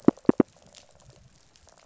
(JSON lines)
{"label": "biophony", "recorder": "SoundTrap 500"}